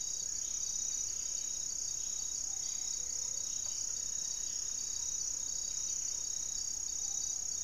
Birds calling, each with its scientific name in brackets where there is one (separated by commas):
Amazonian Trogon (Trogon ramonianus), Buff-breasted Wren (Cantorchilus leucotis), unidentified bird, Gray-fronted Dove (Leptotila rufaxilla)